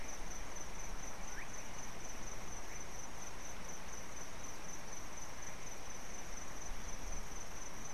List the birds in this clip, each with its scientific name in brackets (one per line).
Slate-colored Boubou (Laniarius funebris)